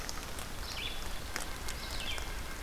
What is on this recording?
Red-eyed Vireo, Red-breasted Nuthatch